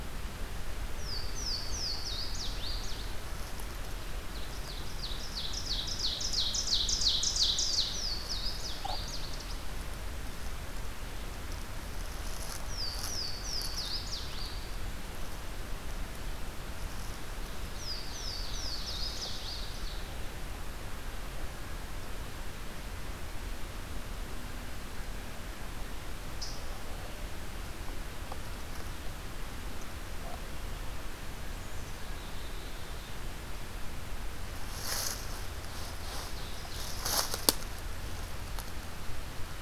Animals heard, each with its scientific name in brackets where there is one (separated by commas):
Ovenbird (Seiurus aurocapilla), Black-capped Chickadee (Poecile atricapillus), Louisiana Waterthrush (Parkesia motacilla)